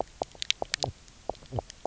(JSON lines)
{"label": "biophony, knock croak", "recorder": "SoundTrap 300"}